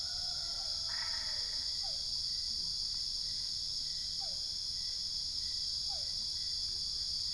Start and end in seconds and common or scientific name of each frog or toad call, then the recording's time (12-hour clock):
0.9	2.2	Boana albopunctata
1.8	2.4	Physalaemus cuvieri
4.0	4.8	Physalaemus cuvieri
5.8	6.3	Physalaemus cuvieri
4:30am